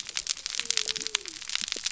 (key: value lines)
label: biophony
recorder: SoundTrap 300